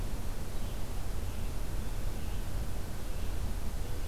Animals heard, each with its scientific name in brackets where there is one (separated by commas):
Red-eyed Vireo (Vireo olivaceus)